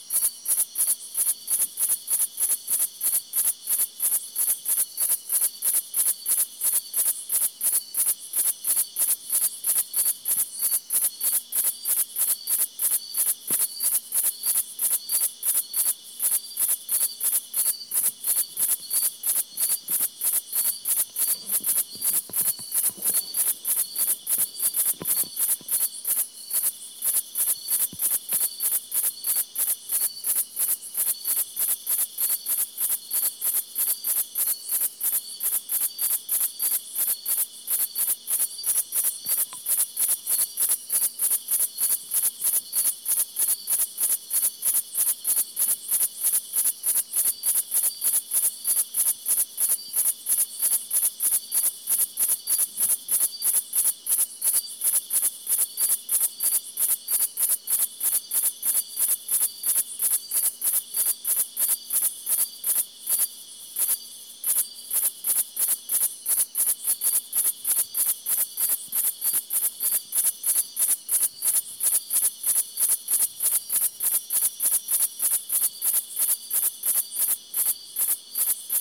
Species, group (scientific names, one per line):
Liara magna
Orthoptera